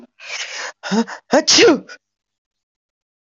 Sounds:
Sneeze